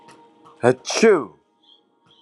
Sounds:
Sneeze